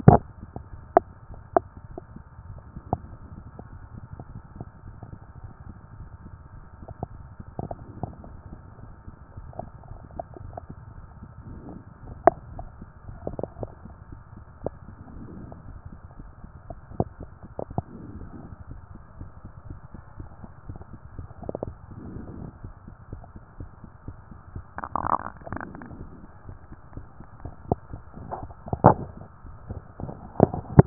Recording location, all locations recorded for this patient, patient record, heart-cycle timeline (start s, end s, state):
mitral valve (MV)
pulmonary valve (PV)+tricuspid valve (TV)+mitral valve (MV)
#Age: Adolescent
#Sex: Female
#Height: nan
#Weight: nan
#Pregnancy status: False
#Murmur: Absent
#Murmur locations: nan
#Most audible location: nan
#Systolic murmur timing: nan
#Systolic murmur shape: nan
#Systolic murmur grading: nan
#Systolic murmur pitch: nan
#Systolic murmur quality: nan
#Diastolic murmur timing: nan
#Diastolic murmur shape: nan
#Diastolic murmur grading: nan
#Diastolic murmur pitch: nan
#Diastolic murmur quality: nan
#Outcome: Normal
#Campaign: 2014 screening campaign
0.00	18.60	unannotated
18.60	18.70	diastole
18.70	18.80	S1
18.80	18.92	systole
18.92	19.00	S2
19.00	19.18	diastole
19.18	19.30	S1
19.30	19.44	systole
19.44	19.52	S2
19.52	19.68	diastole
19.68	19.80	S1
19.80	19.94	systole
19.94	20.02	S2
20.02	20.18	diastole
20.18	20.30	S1
20.30	20.42	systole
20.42	20.50	S2
20.50	20.68	diastole
20.68	20.78	S1
20.78	20.92	systole
20.92	21.00	S2
21.00	21.18	diastole
21.18	21.28	S1
21.28	21.42	systole
21.42	21.52	S2
21.52	21.66	diastole
21.66	21.76	S1
21.76	21.90	systole
21.90	22.00	S2
22.00	22.16	diastole
22.16	30.86	unannotated